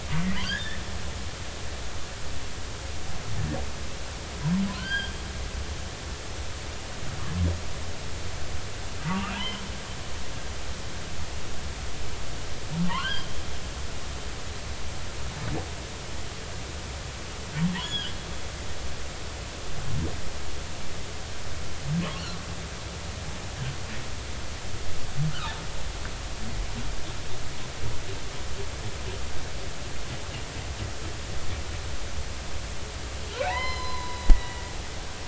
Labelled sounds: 0.4	0.8	humpback whale, 1.4 to 3.5 kHz
4.7	5.1	humpback whale, 1.3 to 4.9 kHz
9.0	9.6	humpback whale, 0.86 to 3.2 kHz
12.9	13.3	humpback whale, 0.83 to 3.4 kHz
17.7	18.1	humpback whale, 1.4 to 5.2 kHz
33.4	34.6	humpback whale, 0.80 to 5.2 kHz

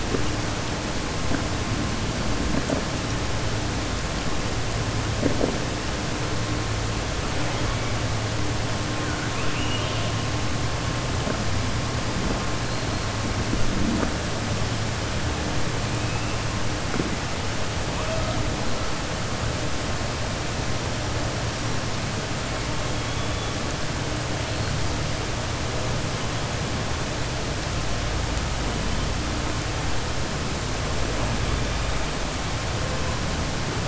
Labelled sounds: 9.0	10.1	killer whale, southern resident, 1.4 to 3.7 kHz

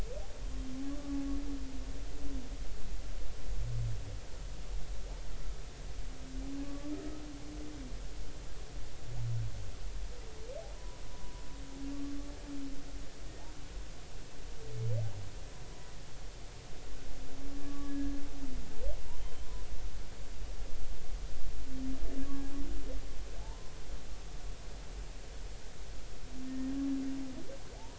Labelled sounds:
0.9	1.2	humpback whale, 1.1 to 1.3 kHz
6.6	6.9	humpback whale, 1.1 to 1.2 kHz
10.8	11.4	humpback whale, 0.93 to 1.0 kHz
17.6	18.1	humpback whale, 1.1 to 1.8 kHz
23.4	23.7	humpback whale, 0.80 to 1.1 kHz
26.5	26.8	humpback whale, 1.8 to 1.9 kHz

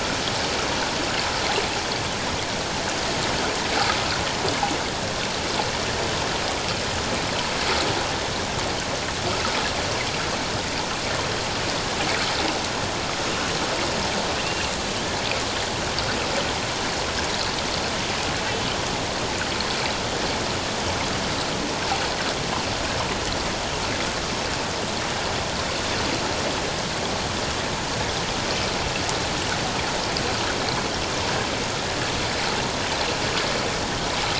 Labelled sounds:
14.4	14.7	killer whale, northern resident, A clan, AB subclan, 2.6 to 2.8 kHz

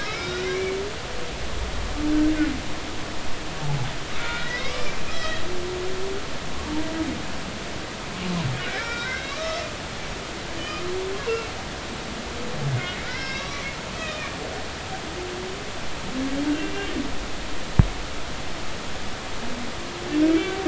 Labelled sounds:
0.0	0.5	humpback whale, 1.2 to 5.3 kHz
3.6	3.9	humpback whale, 0.80 to 0.93 kHz
4.2	5.4	humpback whale, 1.4 to 4.6 kHz
8.6	9.5	humpback whale, 1.3 to 5.3 kHz
10.6	10.8	humpback whale, 2.4 to 3.1 kHz
11.2	11.5	humpback whale, 2.6 to 2.8 kHz
13.0	14.4	humpback whale, 1.2 to 5.5 kHz
20.2	20.5	humpback whale, 2.2 to 2.4 kHz

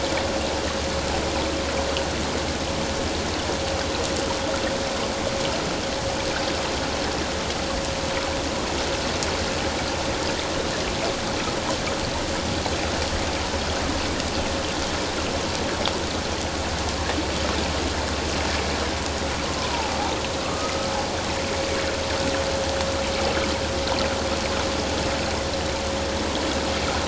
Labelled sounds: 20.4	20.9	humpback whale, 1.1 to 1.3 kHz

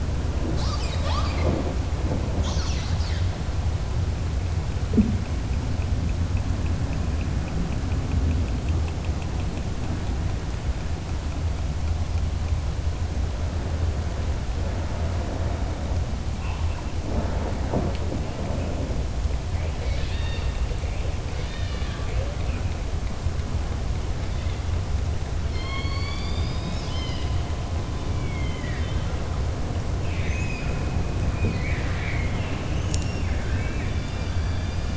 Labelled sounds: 19.7	20.6	killer whale, southern resident, 1.7 to 5.6 kHz
25.4	27.4	killer whale, southern resident, 1.1 to 6.8 kHz
28.2	29.0	killer whale, southern resident, 1.6 to 3.9 kHz
30.0	30.8	killer whale, southern resident, 1.5 to 3.7 kHz

